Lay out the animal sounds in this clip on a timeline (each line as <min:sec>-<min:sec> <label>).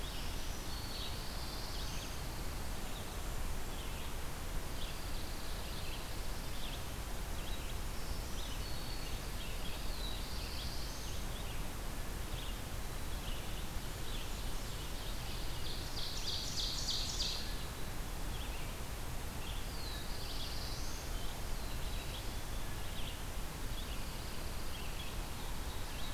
0:00.0-0:01.4 Black-throated Green Warbler (Setophaga virens)
0:00.0-0:14.5 Red-eyed Vireo (Vireo olivaceus)
0:00.6-0:02.2 Black-throated Blue Warbler (Setophaga caerulescens)
0:01.2-0:02.4 Pine Warbler (Setophaga pinus)
0:02.7-0:03.9 Blackburnian Warbler (Setophaga fusca)
0:04.6-0:06.1 Pine Warbler (Setophaga pinus)
0:07.7-0:09.3 Black-throated Green Warbler (Setophaga virens)
0:09.4-0:11.0 Pine Warbler (Setophaga pinus)
0:09.7-0:11.3 Black-throated Blue Warbler (Setophaga caerulescens)
0:13.7-0:14.9 Blackburnian Warbler (Setophaga fusca)
0:15.4-0:17.7 Ovenbird (Seiurus aurocapilla)
0:18.0-0:26.1 Red-eyed Vireo (Vireo olivaceus)
0:19.7-0:21.1 Black-throated Blue Warbler (Setophaga caerulescens)
0:21.4-0:22.9 Black-capped Chickadee (Poecile atricapillus)
0:23.7-0:25.1 Pine Warbler (Setophaga pinus)